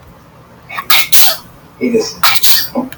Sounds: Sneeze